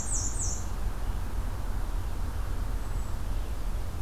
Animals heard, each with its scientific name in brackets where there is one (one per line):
Red-eyed Vireo (Vireo olivaceus)
Hermit Thrush (Catharus guttatus)
Black-and-white Warbler (Mniotilta varia)